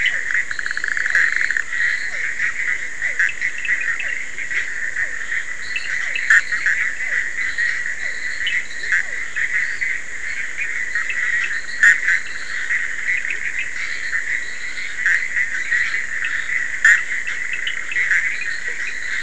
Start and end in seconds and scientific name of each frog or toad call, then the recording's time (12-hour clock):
0.0	9.7	Physalaemus cuvieri
0.0	19.2	Boana bischoffi
0.4	2.4	Boana leptolineata
5.4	19.2	Boana leptolineata
18.6	18.8	Boana faber
12:30am